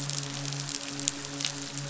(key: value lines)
label: biophony, midshipman
recorder: SoundTrap 500